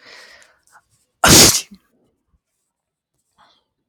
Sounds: Sneeze